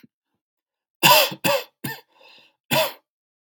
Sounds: Cough